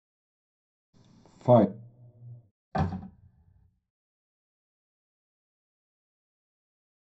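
About 1 second in, someone says "five". Then about 3 seconds in, a wooden cupboard closes.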